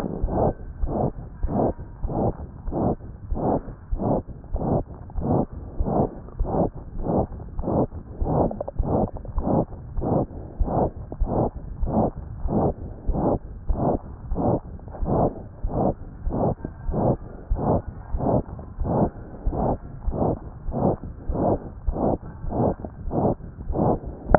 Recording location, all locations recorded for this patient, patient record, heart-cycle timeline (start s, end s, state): tricuspid valve (TV)
aortic valve (AV)+pulmonary valve (PV)+tricuspid valve (TV)+mitral valve (MV)
#Age: Child
#Sex: Male
#Height: 132.0 cm
#Weight: 36.6 kg
#Pregnancy status: False
#Murmur: Present
#Murmur locations: aortic valve (AV)+mitral valve (MV)+pulmonary valve (PV)+tricuspid valve (TV)
#Most audible location: pulmonary valve (PV)
#Systolic murmur timing: Holosystolic
#Systolic murmur shape: Plateau
#Systolic murmur grading: III/VI or higher
#Systolic murmur pitch: Medium
#Systolic murmur quality: Harsh
#Diastolic murmur timing: nan
#Diastolic murmur shape: nan
#Diastolic murmur grading: nan
#Diastolic murmur pitch: nan
#Diastolic murmur quality: nan
#Outcome: Abnormal
#Campaign: 2014 screening campaign
0.00	0.11	unannotated
0.11	0.22	diastole
0.22	0.30	S1
0.30	0.42	systole
0.42	0.52	S2
0.52	0.82	diastole
0.82	0.92	S1
0.92	1.02	systole
1.02	1.12	S2
1.12	1.42	diastole
1.42	1.52	S1
1.52	1.65	systole
1.65	1.75	S2
1.75	2.02	diastole
2.02	2.12	S1
2.12	2.26	systole
2.26	2.34	S2
2.34	2.65	diastole
2.65	2.77	S1
2.77	2.89	systole
2.89	2.98	S2
2.98	3.30	diastole
3.30	3.40	S1
3.40	3.52	systole
3.52	3.60	S2
3.60	3.90	diastole
3.90	4.01	S1
4.01	4.14	systole
4.14	4.22	S2
4.22	4.52	diastole
4.52	4.62	S1
4.62	4.76	systole
4.76	4.84	S2
4.84	5.18	diastole
5.18	24.38	unannotated